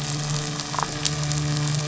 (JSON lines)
{"label": "biophony, midshipman", "recorder": "SoundTrap 500"}
{"label": "biophony", "recorder": "SoundTrap 500"}